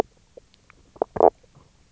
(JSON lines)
{"label": "biophony, knock croak", "recorder": "SoundTrap 300"}